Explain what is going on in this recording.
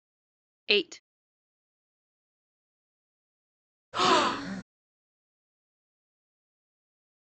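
At 0.68 seconds, someone says "Eight." Then at 3.92 seconds, a person gasps.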